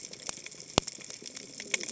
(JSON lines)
{"label": "biophony, cascading saw", "recorder": "HydroMoth"}